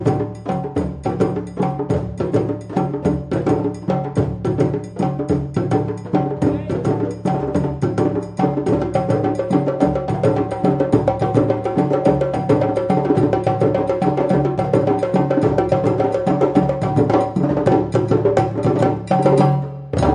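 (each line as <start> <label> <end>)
0.0 People are chatting and singing quietly in the background. 20.1
0.0 Rhythmic drum sound. 20.1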